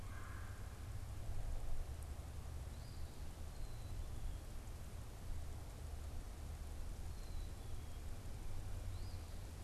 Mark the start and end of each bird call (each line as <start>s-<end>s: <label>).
0.0s-0.9s: Red-bellied Woodpecker (Melanerpes carolinus)
2.6s-3.2s: Eastern Phoebe (Sayornis phoebe)
3.4s-4.5s: Black-capped Chickadee (Poecile atricapillus)
6.9s-8.0s: Black-capped Chickadee (Poecile atricapillus)
8.8s-9.4s: Eastern Phoebe (Sayornis phoebe)